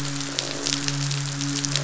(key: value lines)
label: biophony, midshipman
recorder: SoundTrap 500

label: biophony, croak
recorder: SoundTrap 500